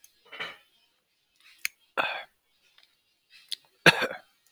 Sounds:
Throat clearing